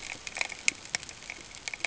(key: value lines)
label: ambient
recorder: HydroMoth